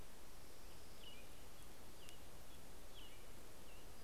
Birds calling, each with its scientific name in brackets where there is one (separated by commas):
American Robin (Turdus migratorius), Orange-crowned Warbler (Leiothlypis celata)